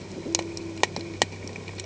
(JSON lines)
{"label": "anthrophony, boat engine", "recorder": "HydroMoth"}